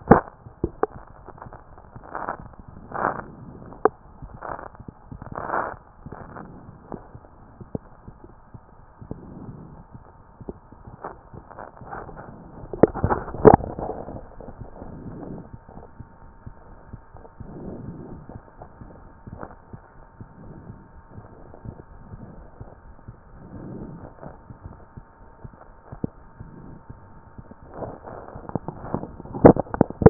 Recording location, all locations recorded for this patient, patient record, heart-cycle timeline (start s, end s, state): aortic valve (AV)
aortic valve (AV)
#Age: Adolescent
#Sex: Male
#Height: 157.0 cm
#Weight: 69.5 kg
#Pregnancy status: False
#Murmur: Absent
#Murmur locations: nan
#Most audible location: nan
#Systolic murmur timing: nan
#Systolic murmur shape: nan
#Systolic murmur grading: nan
#Systolic murmur pitch: nan
#Systolic murmur quality: nan
#Diastolic murmur timing: nan
#Diastolic murmur shape: nan
#Diastolic murmur grading: nan
#Diastolic murmur pitch: nan
#Diastolic murmur quality: nan
#Outcome: Normal
#Campaign: 2014 screening campaign
0.00	15.28	unannotated
15.28	15.30	diastole
15.30	15.40	S1
15.40	15.52	systole
15.52	15.56	S2
15.56	15.75	diastole
15.75	15.84	S1
15.84	15.98	systole
15.98	16.04	S2
16.04	16.24	diastole
16.24	16.31	S1
16.31	16.46	systole
16.46	16.54	S2
16.54	16.70	diastole
16.70	16.78	S1
16.78	16.92	systole
16.92	17.00	S2
17.00	17.14	diastole
17.14	17.23	S1
17.23	17.39	systole
17.39	17.47	S2
17.47	17.66	diastole
17.66	30.10	unannotated